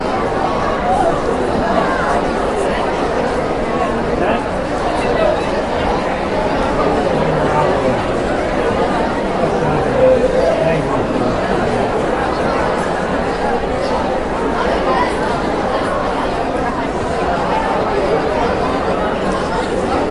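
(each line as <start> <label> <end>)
0.1 People talking, creating a busy atmosphere. 20.1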